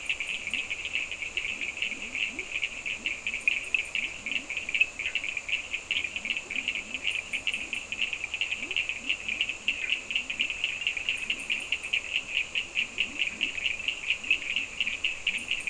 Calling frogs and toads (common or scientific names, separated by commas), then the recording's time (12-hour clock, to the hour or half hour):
Leptodactylus latrans, Cochran's lime tree frog
~4am